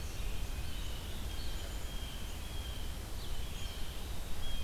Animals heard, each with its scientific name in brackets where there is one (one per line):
Red-eyed Vireo (Vireo olivaceus)
Tufted Titmouse (Baeolophus bicolor)
Blue Jay (Cyanocitta cristata)